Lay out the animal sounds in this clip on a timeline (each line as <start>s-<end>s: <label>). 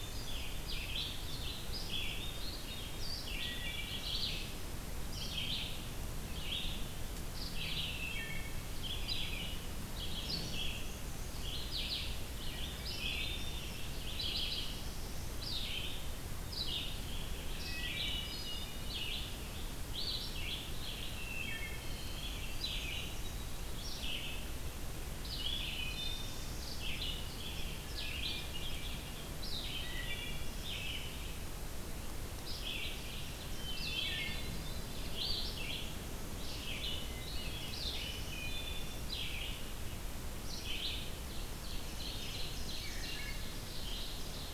0.0s-19.3s: Red-eyed Vireo (Vireo olivaceus)
2.2s-3.1s: Hermit Thrush (Catharus guttatus)
3.2s-4.4s: Wood Thrush (Hylocichla mustelina)
7.7s-8.8s: Wood Thrush (Hylocichla mustelina)
17.5s-19.2s: Wood Thrush (Hylocichla mustelina)
19.8s-44.5s: Red-eyed Vireo (Vireo olivaceus)
21.1s-22.1s: Wood Thrush (Hylocichla mustelina)
25.5s-26.7s: Wood Thrush (Hylocichla mustelina)
27.8s-29.2s: Hermit Thrush (Catharus guttatus)
29.7s-30.8s: Wood Thrush (Hylocichla mustelina)
33.4s-34.9s: Wood Thrush (Hylocichla mustelina)
38.0s-39.1s: Wood Thrush (Hylocichla mustelina)
41.4s-44.5s: Ovenbird (Seiurus aurocapilla)
42.8s-43.5s: Wood Thrush (Hylocichla mustelina)